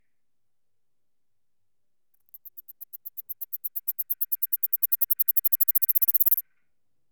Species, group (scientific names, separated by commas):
Platystolus martinezii, Orthoptera